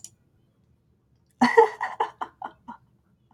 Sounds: Laughter